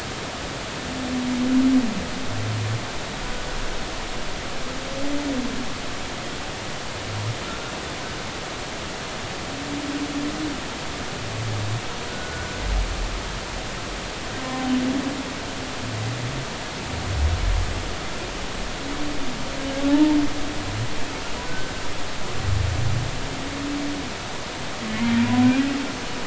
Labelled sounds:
12.1	12.5	humpback whale, 1.4 to 1.6 kHz
19.9	20.2	humpback whale, 0.80 to 0.96 kHz
21.5	21.7	humpback whale, 1.5 to 1.6 kHz
24.9	25.2	humpback whale, 2.1 to 2.2 kHz

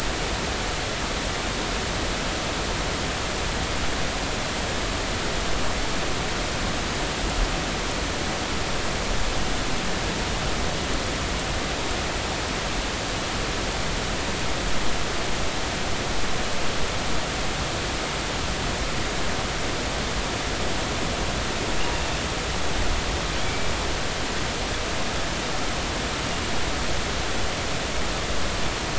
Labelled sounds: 23.4	23.7	killer whale, northern resident, 2.2 to 2.4 kHz

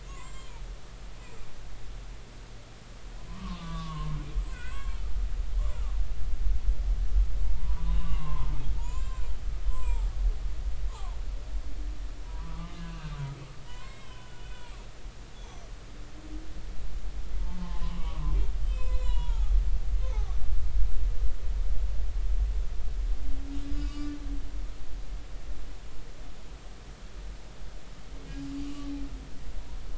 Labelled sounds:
0.0	0.5	humpback whale, 0.93 to 7.7 kHz
3.3	4.2	humpback whale, 0.86 to 1.3 kHz
4.5	5.8	humpback whale, 0.90 to 3.4 kHz
7.6	9.3	humpback whale, 0.86 to 7.5 kHz
9.6	10.1	humpback whale, 0.83 to 7.8 kHz
12.2	13.1	humpback whale, 0.93 to 2.9 kHz
13.7	14.5	humpback whale, 0.93 to 3.1 kHz
15.3	15.6	humpback whale, 3.2 to 3.5 kHz
17.4	18.2	humpback whale, 0.80 to 3.1 kHz
18.6	20.4	humpback whale, 0.80 to 7.8 kHz
23.8	24.1	humpback whale, 1.1 to 6.8 kHz

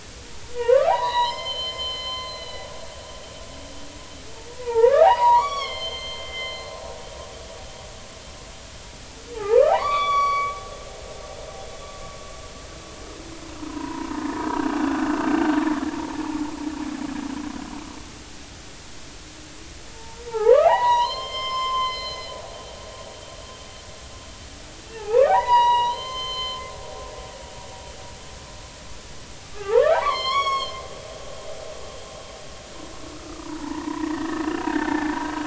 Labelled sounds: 0.5	2.7	humpback whale, 0.80 to 7.2 kHz
4.6	6.7	humpback whale, 0.80 to 6.4 kHz
9.3	10.6	humpback whale, 0.80 to 5.8 kHz
13.7	14.4	humpback whale, 0.86 to 1.1 kHz
19.9	22.4	humpback whale, 0.80 to 5.3 kHz
24.9	26.7	humpback whale, 0.80 to 6.3 kHz
29.5	30.8	humpback whale, 0.80 to 8.0 kHz
33.4	35.1	humpback whale, 0.80 to 2.0 kHz

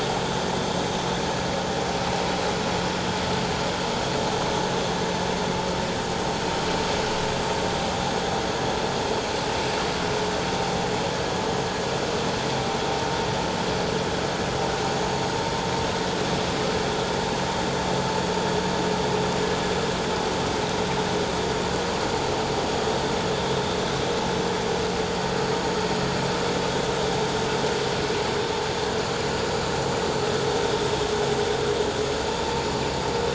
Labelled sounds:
4.4	4.6	vessel noise, 6.1 to 6.3 kHz
22.7	22.9	vessel noise, 6.6 to 6.8 kHz

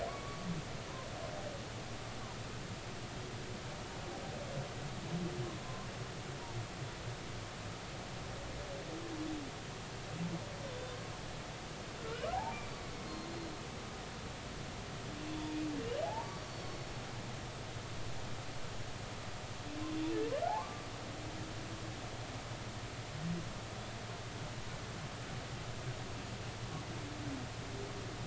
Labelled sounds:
0.1	0.5	humpback whale, 1.0 to 1.2 kHz
5.6	5.9	humpback whale, 0.99 to 1.1 kHz
10.7	11.0	humpback whale, 3.4 to 3.6 kHz
12.0	12.3	humpback whale, 1.3 to 1.7 kHz
13.1	13.5	humpback whale, 4.1 to 4.3 kHz
16.0	16.8	humpback whale, 0.80 to 4.6 kHz
20.5	20.9	humpback whale, 0.80 to 1.2 kHz

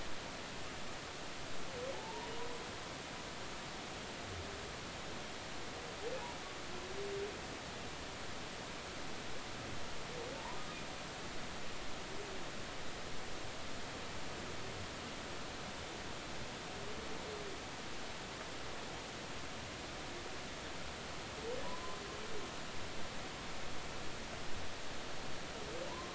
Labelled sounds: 1.9	2.3	humpback whale, 0.83 to 1.0 kHz
21.6	22.0	humpback whale, 0.93 to 1.1 kHz
25.9	26.1	humpback whale, 0.90 to 1.1 kHz

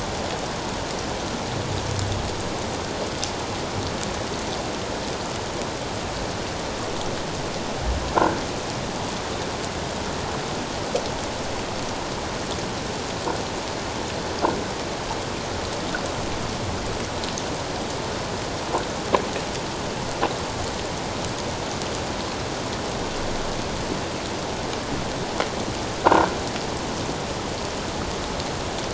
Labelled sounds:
26.0	26.3	croaking sound likely from a nearby submerged object, 1.3 to 1.6 kHz

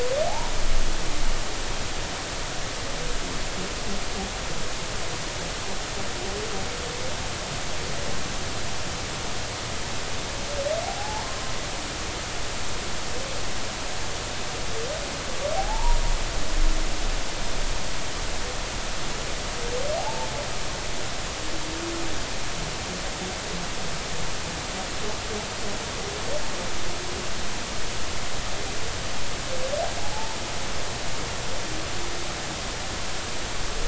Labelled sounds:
0.3	0.5	humpback whale, 0.80 to 1.0 kHz
10.8	11.2	humpback whale, 0.80 to 1.0 kHz
15.5	16.0	humpback whale, 0.80 to 1.0 kHz
20.0	20.3	humpback whale, 0.80 to 0.96 kHz
30.0	30.4	humpback whale, 0.80 to 1.0 kHz

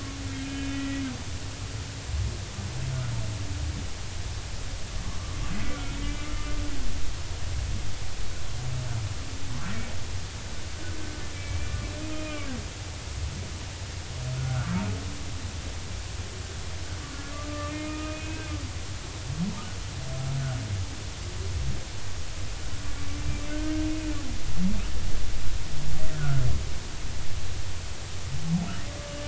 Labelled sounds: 0.4	1.0	humpback whale, 1.9 to 3.1 kHz
5.5	5.9	humpback whale, 1.3 to 2.1 kHz
6.3	6.6	humpback whale, 2.0 to 2.1 kHz
11.3	12.5	humpback whale, 2.2 to 2.5 kHz
14.4	14.8	humpback whale, 1.2 to 1.6 kHz
17.5	18.6	humpback whale, 1.1 to 2.6 kHz
23.5	23.8	humpback whale, 1.4 to 1.6 kHz
26.1	26.4	humpback whale, 1.2 to 1.6 kHz

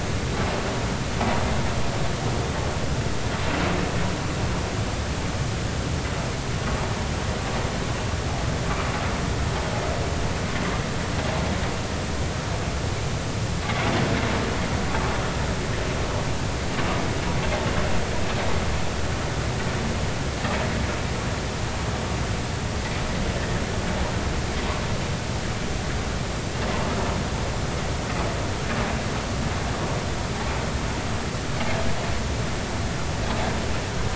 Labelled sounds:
23.4	23.6	vessel noise, 1.6 to 1.9 kHz

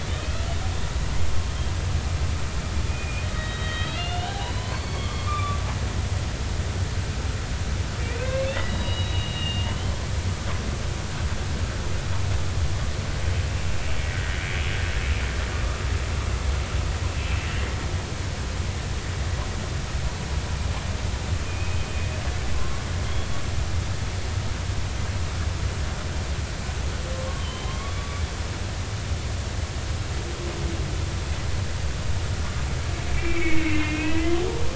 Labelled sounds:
2.9	5.6	humpback whale, 0.93 to 4.5 kHz
8.0	9.9	humpback whale, 1.5 to 4.0 kHz
21.5	22.8	humpback whale, 0.99 to 2.6 kHz
27.4	28.2	humpback whale, 0.99 to 3.5 kHz
33.1	34.4	humpback whale, 1.9 to 2.8 kHz

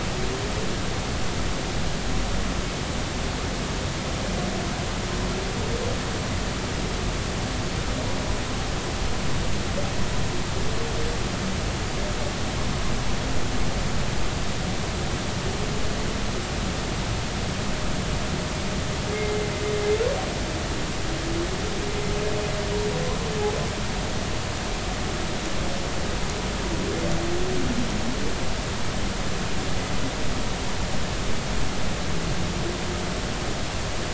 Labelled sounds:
19.1	19.5	humpback whale, 2.0 to 2.2 kHz

